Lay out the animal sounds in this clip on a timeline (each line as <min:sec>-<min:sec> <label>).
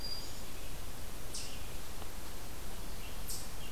0:00.0-0:00.7 Black-throated Green Warbler (Setophaga virens)
0:00.0-0:01.7 Red-eyed Vireo (Vireo olivaceus)
0:00.0-0:03.7 Eastern Chipmunk (Tamias striatus)
0:02.9-0:03.7 Scarlet Tanager (Piranga olivacea)